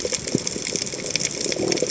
{"label": "biophony", "recorder": "HydroMoth"}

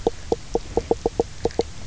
{"label": "biophony, knock croak", "recorder": "SoundTrap 300"}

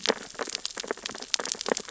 {"label": "biophony, sea urchins (Echinidae)", "recorder": "SoundTrap 600 or HydroMoth"}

